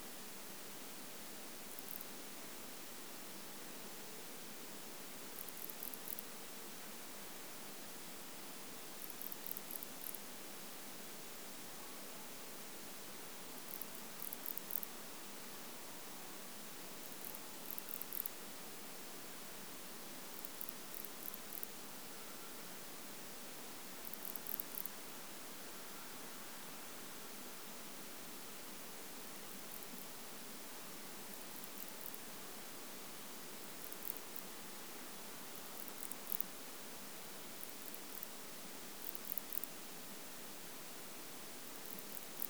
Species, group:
Barbitistes yersini, Orthoptera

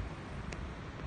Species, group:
Telmapsalta hackeri, Cicadidae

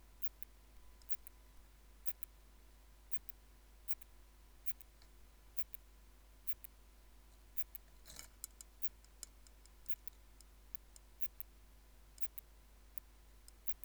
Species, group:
Phaneroptera falcata, Orthoptera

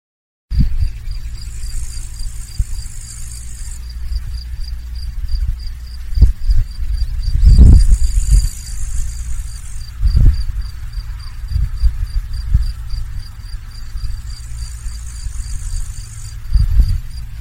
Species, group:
Tettigonia cantans, Orthoptera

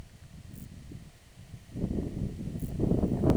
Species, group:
Chorthippus brunneus, Orthoptera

